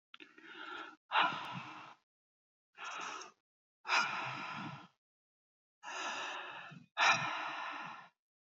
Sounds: Sigh